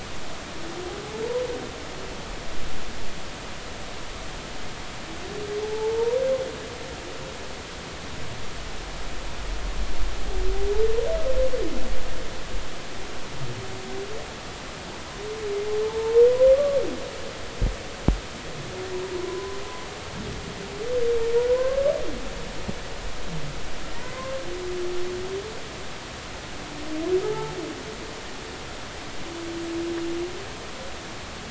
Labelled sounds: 5.6	6.2	humpback whale, 0.80 to 0.99 kHz
15.8	16.8	humpback whale, 0.83 to 1.2 kHz
19.2	19.6	humpback whale, 0.96 to 1.1 kHz
21.5	21.8	humpback whale, 0.96 to 1.7 kHz
23.9	24.4	humpback whale, 0.90 to 2.2 kHz
27.2	27.5	humpback whale, 0.80 to 0.93 kHz

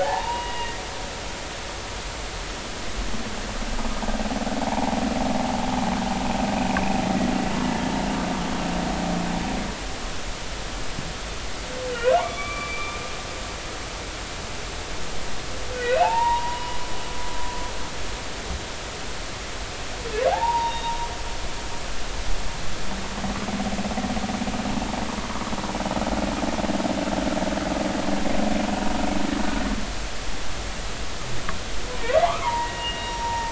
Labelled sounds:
0.0	0.9	humpback whale, 0.80 to 2.9 kHz
4.6	5.0	humpback whale, 0.80 to 0.99 kHz
12.2	13.0	humpback whale, 0.80 to 2.4 kHz
15.7	16.8	humpback whale, 0.80 to 2.8 kHz
20.3	21.1	humpback whale, 0.80 to 3.8 kHz
32.2	33.5	humpback whale, 0.80 to 2.9 kHz

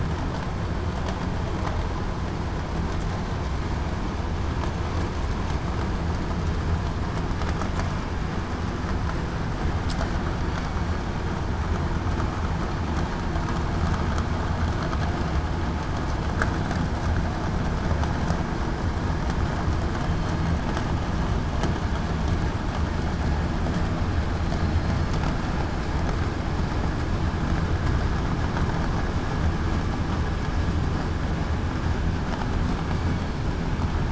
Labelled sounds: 24.5	25.1	killer whale, southern resident, 4.1 to 4.4 kHz

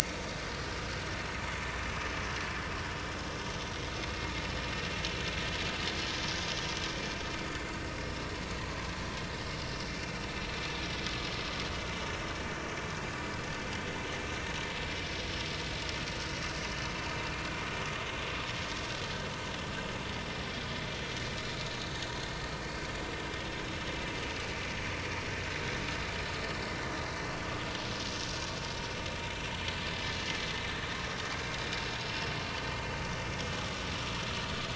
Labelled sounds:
8.5	8.8	vessel noise, 4.3 to 4.5 kHz

